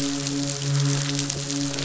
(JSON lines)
{"label": "biophony, midshipman", "recorder": "SoundTrap 500"}